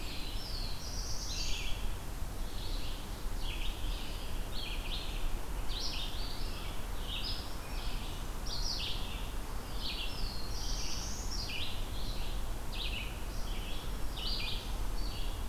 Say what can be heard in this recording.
Black-throated Blue Warbler, Red-eyed Vireo, Black-throated Green Warbler